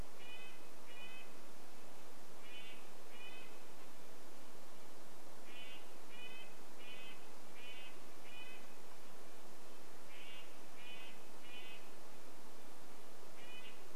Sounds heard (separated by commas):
Red-breasted Nuthatch song